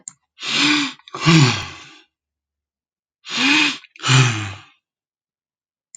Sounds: Sigh